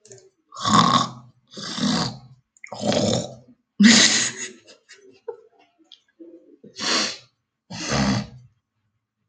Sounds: Throat clearing